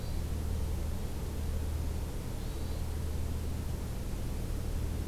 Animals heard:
Hermit Thrush (Catharus guttatus)

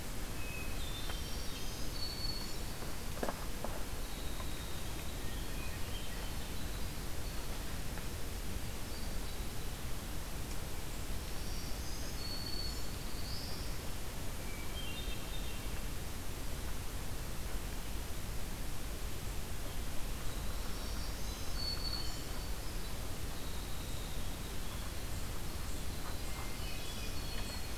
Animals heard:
Winter Wren (Troglodytes hiemalis), Black-throated Green Warbler (Setophaga virens), Black-throated Blue Warbler (Setophaga caerulescens), Hermit Thrush (Catharus guttatus)

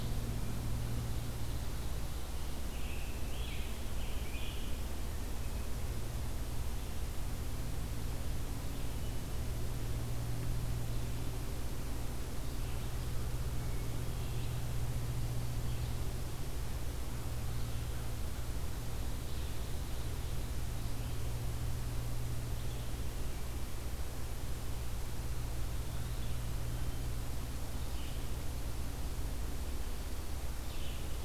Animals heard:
Red-eyed Vireo (Vireo olivaceus), Scarlet Tanager (Piranga olivacea), Hermit Thrush (Catharus guttatus)

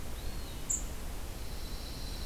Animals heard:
Eastern Wood-Pewee (Contopus virens), Pine Warbler (Setophaga pinus), unidentified call

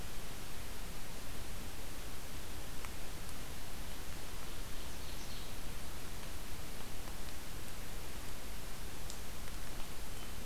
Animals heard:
Ovenbird (Seiurus aurocapilla)

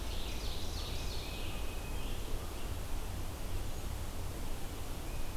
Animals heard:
Red-eyed Vireo (Vireo olivaceus), Tufted Titmouse (Baeolophus bicolor), Ovenbird (Seiurus aurocapilla)

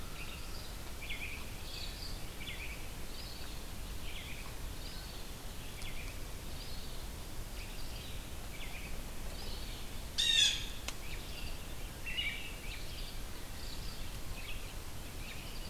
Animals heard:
American Robin (Turdus migratorius), Blue Jay (Cyanocitta cristata)

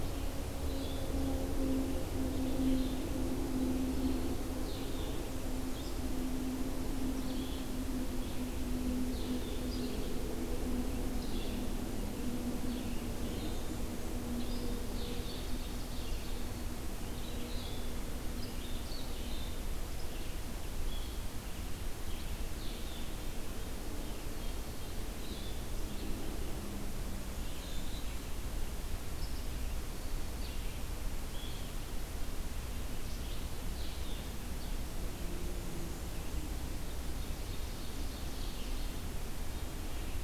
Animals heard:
Blackburnian Warbler (Setophaga fusca), Ovenbird (Seiurus aurocapilla), Red-eyed Vireo (Vireo olivaceus), Blue-headed Vireo (Vireo solitarius)

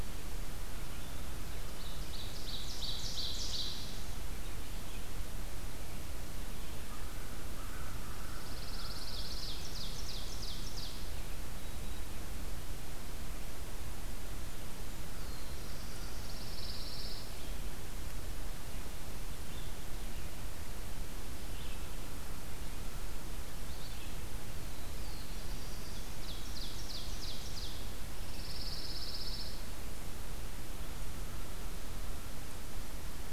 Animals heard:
American Crow (Corvus brachyrhynchos), Ovenbird (Seiurus aurocapilla), Pine Warbler (Setophaga pinus), Red-eyed Vireo (Vireo olivaceus), Black-throated Blue Warbler (Setophaga caerulescens)

